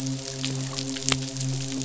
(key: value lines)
label: biophony, midshipman
recorder: SoundTrap 500